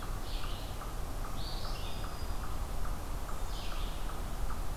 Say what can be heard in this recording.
Eastern Chipmunk, Red-eyed Vireo, Black-throated Green Warbler, Black-capped Chickadee